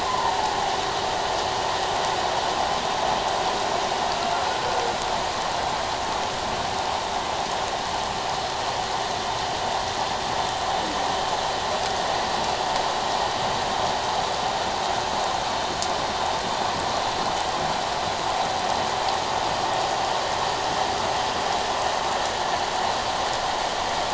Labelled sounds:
0.1	0.3	humpback whale, 0.84 to 1.2 kHz

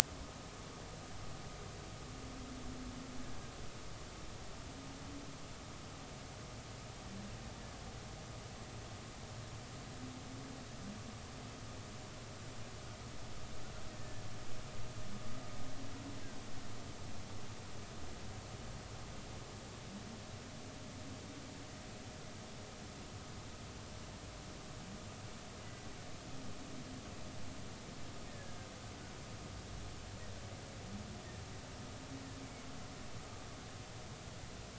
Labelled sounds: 13.9	14.2	killer whale, Bigg's (transient), 1.7 to 1.9 kHz
28.3	28.5	killer whale, Bigg's (transient), 1.6 to 1.9 kHz

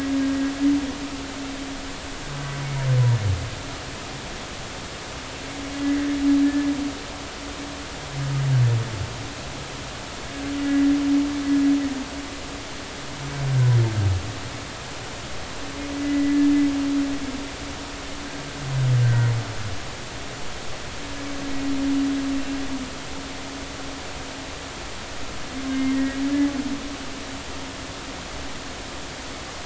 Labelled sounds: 5.8	6.1	humpback whale, 1.9 to 2.0 kHz
10.6	10.9	humpback whale, 1.9 to 2.0 kHz
17.0	17.4	humpback whale, 1.9 to 2.0 kHz
19.0	19.3	humpback whale, 1.4 to 1.6 kHz
25.7	26.2	humpback whale, 1.8 to 2.2 kHz

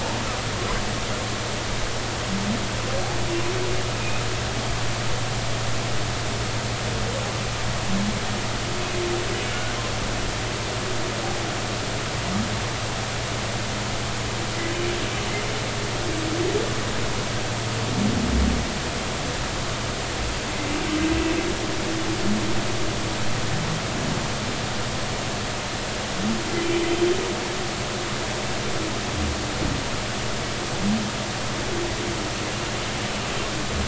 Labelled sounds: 9.5	9.8	humpback whale, 1.4 to 1.6 kHz

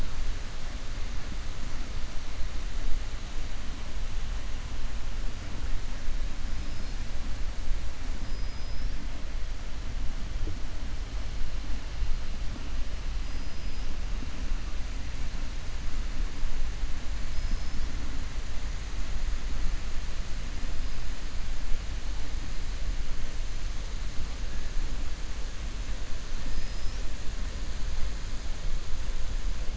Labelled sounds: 8.2	8.9	killer whale, 4.6 to 5.6 kHz
13.2	13.9	killer whale, 4.9 to 5.2 kHz
17.2	17.8	killer whale, 4.5 to 5.7 kHz
26.4	27.0	killer whale, 4.9 to 5.8 kHz

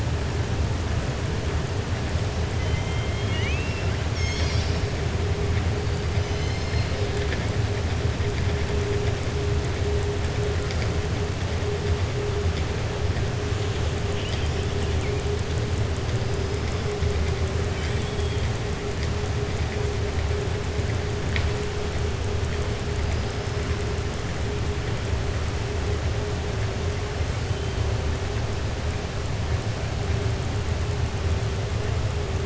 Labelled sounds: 2.5	4.0	killer whale, southern resident, 1.9 to 3.8 kHz
6.1	7.0	killer whale, southern resident, 2.1 to 6.3 kHz

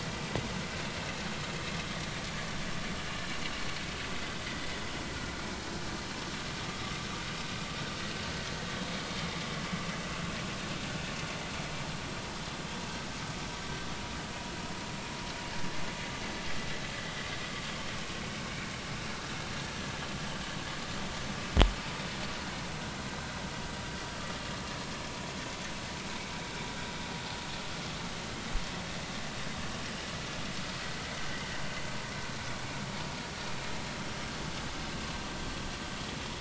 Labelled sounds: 4.5	4.7	vessel noise, 1.9 to 2.1 kHz

